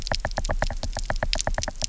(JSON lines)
{"label": "biophony, knock", "recorder": "SoundTrap 300"}